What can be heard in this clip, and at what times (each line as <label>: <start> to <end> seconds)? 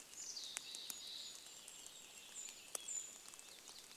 Mountain Chickadee call: 0 to 2 seconds
Golden-crowned Kinglet song: 0 to 4 seconds
rain: 0 to 4 seconds
Purple Finch song: 2 to 4 seconds
Red-breasted Nuthatch song: 2 to 4 seconds